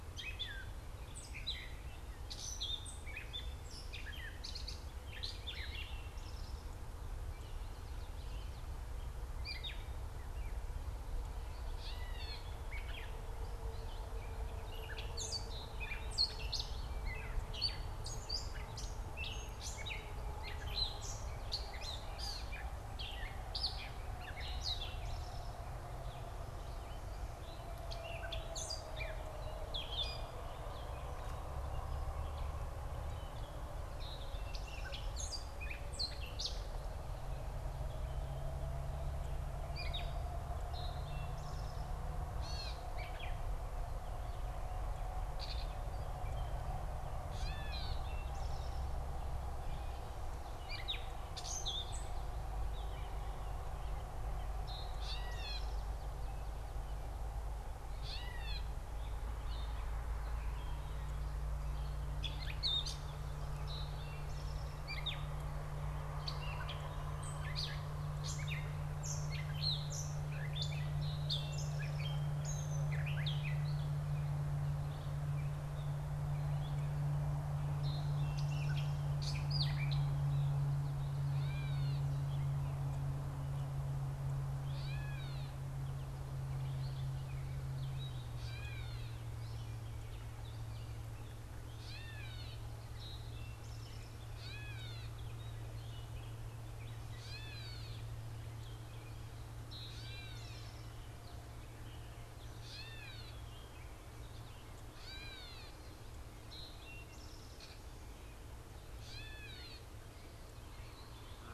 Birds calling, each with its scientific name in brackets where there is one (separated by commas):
Common Yellowthroat (Geothlypis trichas), Gray Catbird (Dumetella carolinensis), Eastern Towhee (Pipilo erythrophthalmus)